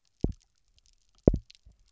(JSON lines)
{"label": "biophony, double pulse", "recorder": "SoundTrap 300"}